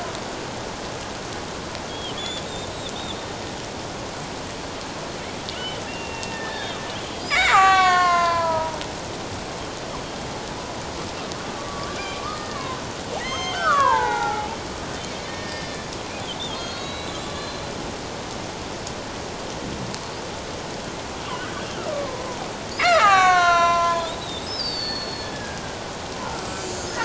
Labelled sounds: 1.9	2.5	killer whale, Bigg's (transient), 2.9 to 3.6 kHz
5.5	8.8	killer whale, Bigg's (transient), 0.78 to 7.7 kHz
11.4	14.5	killer whale, Bigg's (transient), 0.78 to 6.4 kHz
15.3	17.7	killer whale, Bigg's (transient), 1.2 to 5.5 kHz
21.4	25.6	killer whale, Bigg's (transient), 0.78 to 7.3 kHz
26.5	26.7	killer whale, Bigg's (transient), 4.6 to 4.9 kHz

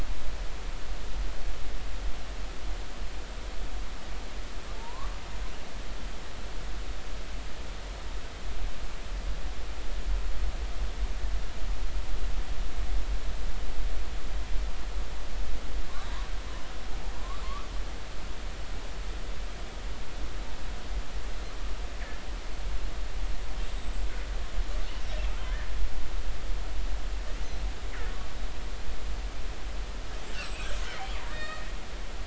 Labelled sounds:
4.8	5.1	killer whale, northern resident, 0.86 to 1.2 kHz
17.4	17.7	killer whale, northern resident, 0.99 to 1.3 kHz
30.4	31.7	killer whale, northern resident, 1.6 to 7.9 kHz

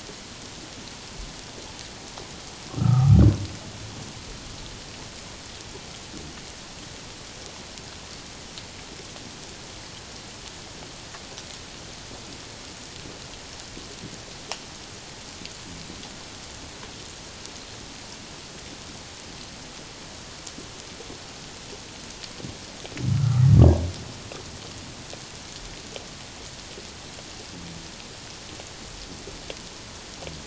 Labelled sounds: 2.8	3.2	humpback whale, 1.1 to 1.4 kHz
23.1	23.5	humpback whale, 1.1 to 1.4 kHz

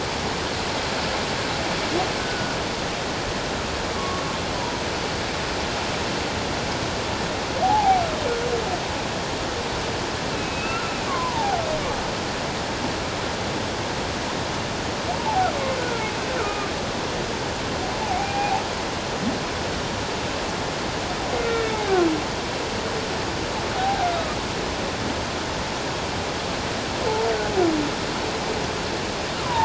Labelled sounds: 2.2	2.6	humpback whale, 1.4 to 1.6 kHz
3.9	4.2	humpback whale, 1.0 to 1.2 kHz
4.6	4.8	humpback whale, 0.88 to 1.0 kHz
7.6	8.0	humpback whale, 0.78 to 0.94 kHz
10.3	11.6	humpback whale, 0.78 to 2.8 kHz
15.2	15.5	humpback whale, 0.78 to 1.0 kHz
16.4	16.7	humpback whale, 1.2 to 2.5 kHz
18.0	18.6	humpback whale, 0.78 to 2.5 kHz
21.5	21.9	humpback whale, 1.7 to 3.8 kHz
23.7	24.4	humpback whale, 0.78 to 1.4 kHz

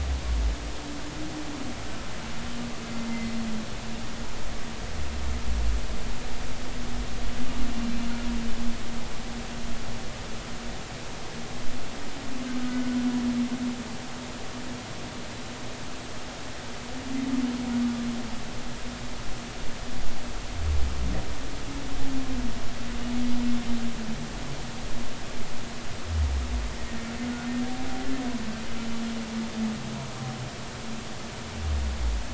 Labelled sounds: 3.1	3.4	humpback whale, 2.0 to 2.1 kHz
12.7	13.0	humpback whale, 1.4 to 1.5 kHz

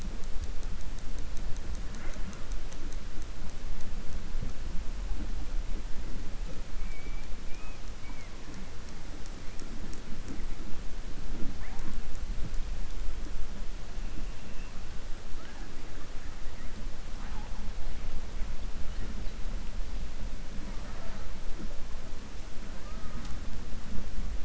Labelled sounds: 7.4	7.8	killer whale, southern resident, 2.3 to 3.4 kHz

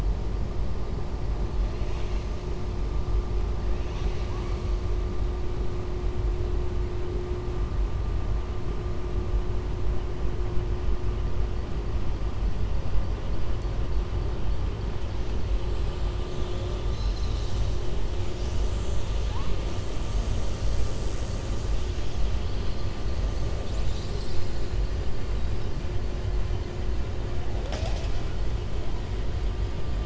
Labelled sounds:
16.8	17.7	killer whale, southern resident, 3.6 to 7.5 kHz

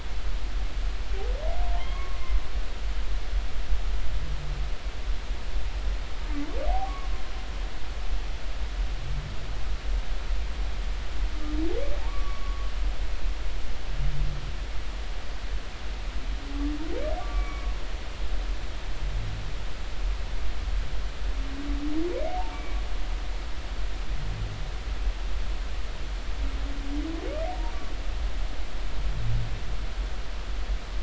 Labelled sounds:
1.7	2.2	humpback whale, 1.0 to 2.2 kHz
6.7	7.1	humpback whale, 0.80 to 1.2 kHz
12.0	12.7	humpback whale, 0.80 to 1.2 kHz
17.2	17.7	humpback whale, 1.1 to 2.4 kHz
22.5	22.8	humpback whale, 2.2 to 2.4 kHz

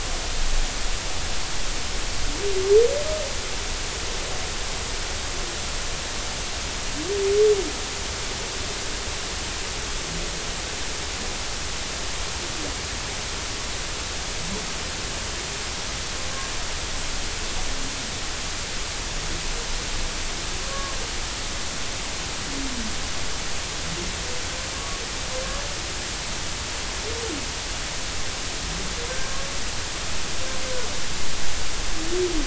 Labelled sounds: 20.7	20.9	humpback whale, 1.0 to 1.2 kHz
24.8	25.0	humpback whale, 1.0 to 1.2 kHz
29.1	29.4	humpback whale, 1.5 to 1.6 kHz

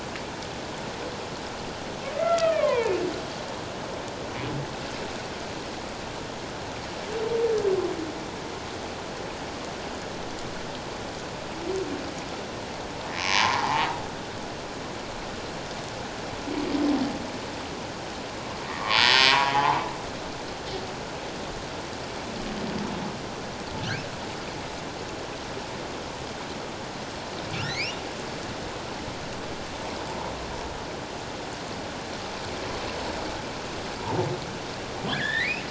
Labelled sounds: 2.2	2.9	humpback whale, 0.88 to 3.4 kHz
13.2	13.9	humpback whale, 0.78 to 1.2 kHz
18.7	19.8	humpback whale, 0.78 to 5.4 kHz
27.6	28.0	humpback whale, 1.7 to 3.0 kHz
35.1	35.6	humpback whale, 1.5 to 4.1 kHz

